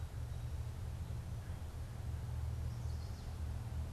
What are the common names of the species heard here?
Chestnut-sided Warbler